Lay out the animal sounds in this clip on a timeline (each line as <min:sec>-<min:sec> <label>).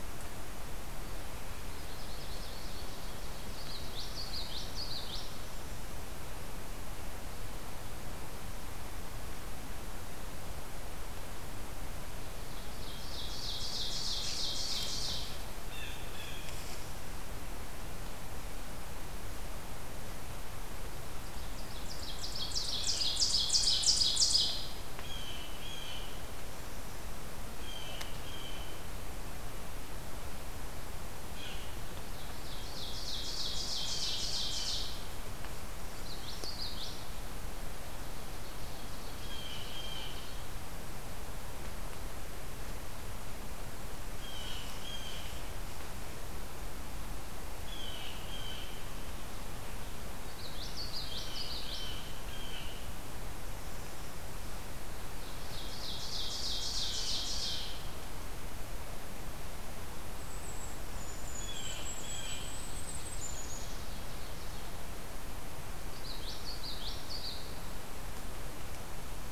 0:01.5-0:03.0 Blackburnian Warbler (Setophaga fusca)
0:03.4-0:05.3 Common Yellowthroat (Geothlypis trichas)
0:12.5-0:15.5 Ovenbird (Seiurus aurocapilla)
0:15.6-0:16.6 Blue Jay (Cyanocitta cristata)
0:21.4-0:24.6 Ovenbird (Seiurus aurocapilla)
0:24.9-0:26.3 Blue Jay (Cyanocitta cristata)
0:27.5-0:29.0 Blue Jay (Cyanocitta cristata)
0:31.3-0:31.7 Blue Jay (Cyanocitta cristata)
0:32.3-0:35.0 Ovenbird (Seiurus aurocapilla)
0:36.0-0:37.1 Common Yellowthroat (Geothlypis trichas)
0:37.6-0:40.2 Ovenbird (Seiurus aurocapilla)
0:39.1-0:40.3 Blue Jay (Cyanocitta cristata)
0:44.2-0:45.2 Blue Jay (Cyanocitta cristata)
0:47.6-0:48.8 Blue Jay (Cyanocitta cristata)
0:50.3-0:51.9 Common Yellowthroat (Geothlypis trichas)
0:51.6-0:52.9 Blue Jay (Cyanocitta cristata)
0:55.3-0:57.7 Ovenbird (Seiurus aurocapilla)
1:00.1-1:03.8 Golden-crowned Kinglet (Regulus satrapa)
1:01.5-1:02.4 Blue Jay (Cyanocitta cristata)
1:02.2-1:04.7 Ovenbird (Seiurus aurocapilla)
1:05.8-1:07.4 Common Yellowthroat (Geothlypis trichas)